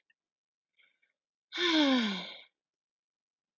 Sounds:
Sigh